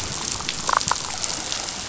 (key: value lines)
label: biophony, damselfish
recorder: SoundTrap 500